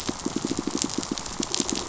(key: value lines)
label: biophony, pulse
recorder: SoundTrap 500